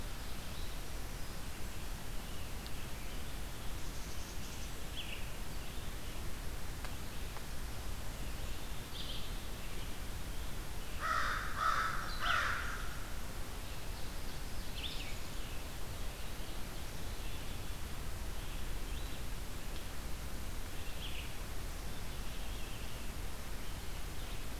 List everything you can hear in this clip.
Black-throated Green Warbler, Black-capped Chickadee, Red-eyed Vireo, American Crow, Ovenbird